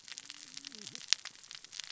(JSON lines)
{"label": "biophony, cascading saw", "recorder": "SoundTrap 600 or HydroMoth"}